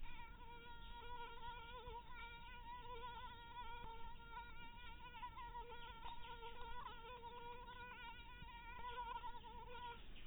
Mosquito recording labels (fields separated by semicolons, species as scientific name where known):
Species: mosquito; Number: one; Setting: cup